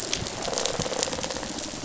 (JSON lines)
{"label": "biophony, rattle response", "recorder": "SoundTrap 500"}